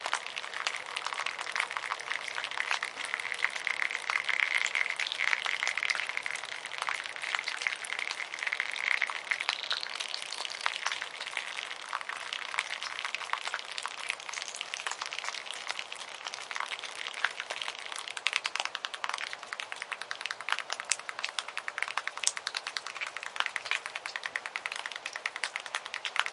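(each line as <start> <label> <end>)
0.0 Raindrops falling on a hard surface. 6.3
6.8 Water is running between raindrops. 15.4
18.5 Raindrops falling on a hard surface. 26.3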